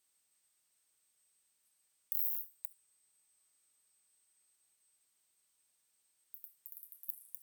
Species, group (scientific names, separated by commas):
Isophya longicaudata, Orthoptera